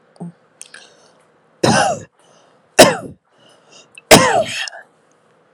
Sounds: Cough